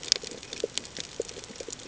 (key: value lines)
label: ambient
recorder: HydroMoth